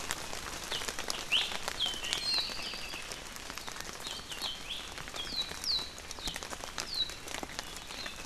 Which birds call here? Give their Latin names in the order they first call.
Himatione sanguinea, Drepanis coccinea